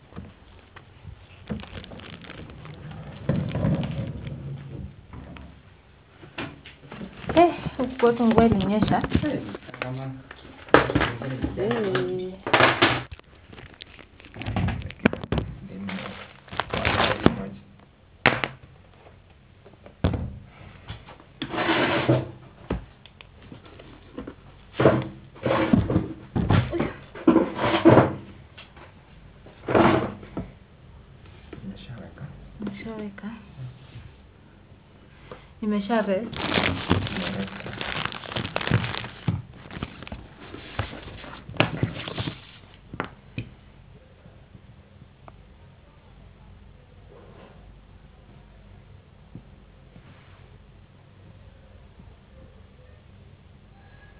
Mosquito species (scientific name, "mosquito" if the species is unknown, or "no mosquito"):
no mosquito